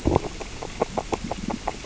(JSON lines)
{"label": "biophony, grazing", "recorder": "SoundTrap 600 or HydroMoth"}